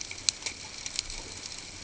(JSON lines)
{"label": "ambient", "recorder": "HydroMoth"}